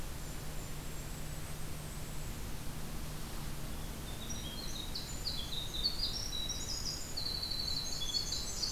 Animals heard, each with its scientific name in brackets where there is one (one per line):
Blackburnian Warbler (Setophaga fusca)
Golden-crowned Kinglet (Regulus satrapa)
Winter Wren (Troglodytes hiemalis)